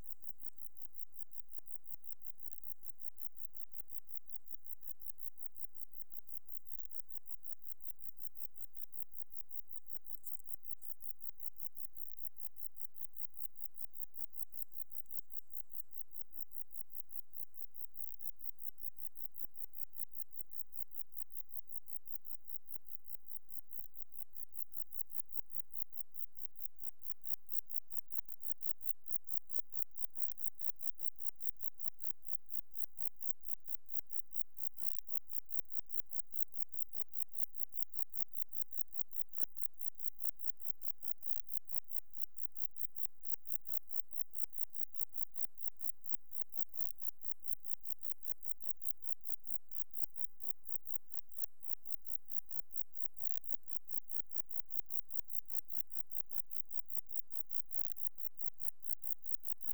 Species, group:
Metrioptera buyssoni, Orthoptera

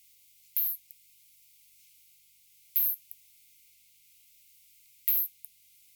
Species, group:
Isophya rhodopensis, Orthoptera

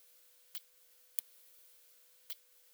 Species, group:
Leptophyes punctatissima, Orthoptera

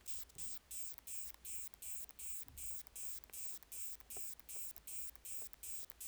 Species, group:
Isophya kraussii, Orthoptera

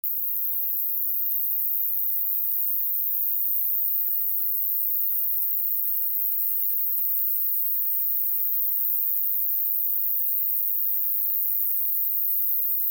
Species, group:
Ruspolia nitidula, Orthoptera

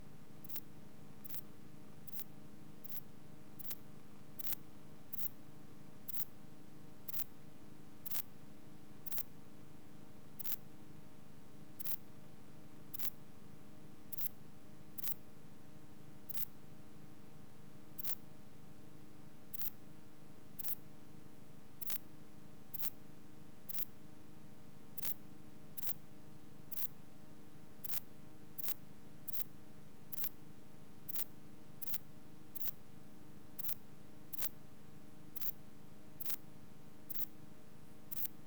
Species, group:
Ephippiger diurnus, Orthoptera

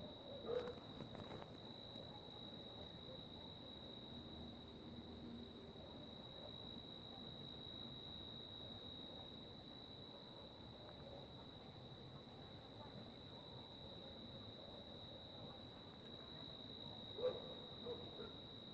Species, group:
Oecanthus dulcisonans, Orthoptera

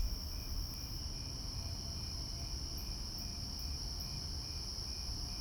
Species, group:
Oecanthus fultoni, Orthoptera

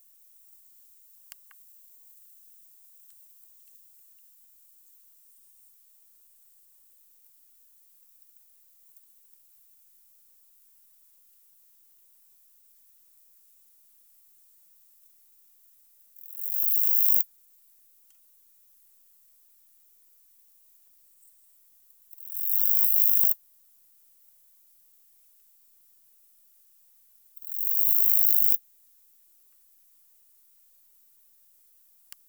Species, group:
Saga hellenica, Orthoptera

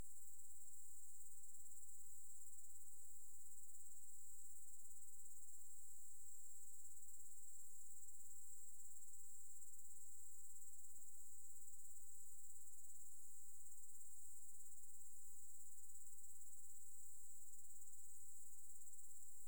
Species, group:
Tettigonia cantans, Orthoptera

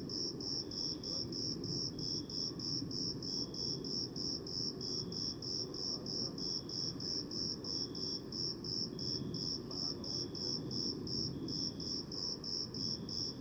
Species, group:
Eumodicogryllus bordigalensis, Orthoptera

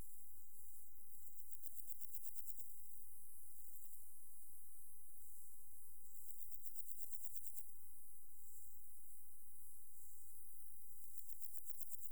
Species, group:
Pseudochorthippus parallelus, Orthoptera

